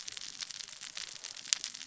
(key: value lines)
label: biophony, cascading saw
recorder: SoundTrap 600 or HydroMoth